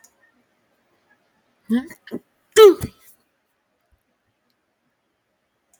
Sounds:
Sneeze